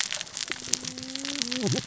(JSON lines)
{"label": "biophony, cascading saw", "recorder": "SoundTrap 600 or HydroMoth"}